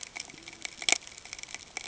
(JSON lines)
{"label": "ambient", "recorder": "HydroMoth"}